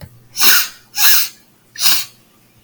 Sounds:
Sniff